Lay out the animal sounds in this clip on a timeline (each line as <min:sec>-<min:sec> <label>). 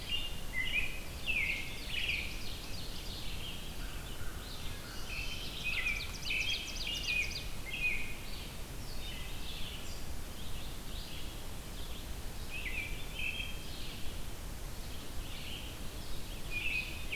0:00.0-0:02.3 American Robin (Turdus migratorius)
0:01.2-0:03.5 Ovenbird (Seiurus aurocapilla)
0:02.9-0:17.2 Red-eyed Vireo (Vireo olivaceus)
0:03.8-0:05.3 American Crow (Corvus brachyrhynchos)
0:04.8-0:08.3 American Robin (Turdus migratorius)
0:05.4-0:07.7 Ovenbird (Seiurus aurocapilla)
0:12.2-0:13.8 American Robin (Turdus migratorius)
0:16.1-0:17.2 American Robin (Turdus migratorius)